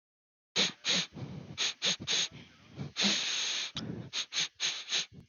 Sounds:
Sniff